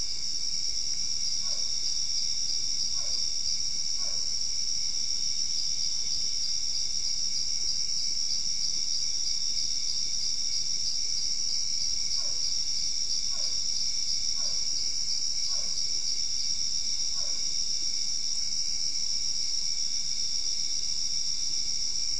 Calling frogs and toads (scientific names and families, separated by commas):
Dendropsophus cruzi (Hylidae), Physalaemus cuvieri (Leptodactylidae)